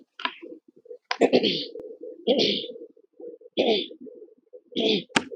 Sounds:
Throat clearing